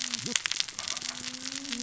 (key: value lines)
label: biophony, cascading saw
recorder: SoundTrap 600 or HydroMoth